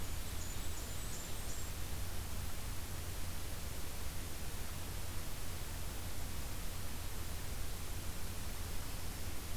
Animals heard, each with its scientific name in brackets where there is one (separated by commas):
Blackburnian Warbler (Setophaga fusca)